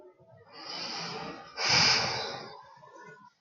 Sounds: Sigh